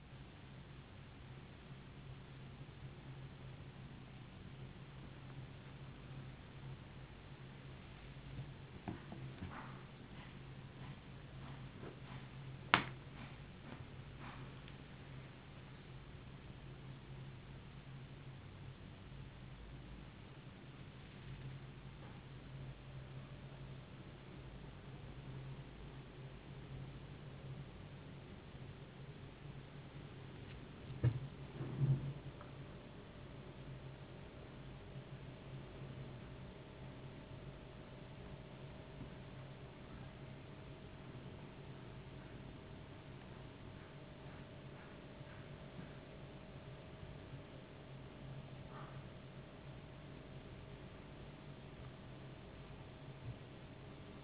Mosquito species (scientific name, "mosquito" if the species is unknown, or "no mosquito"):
no mosquito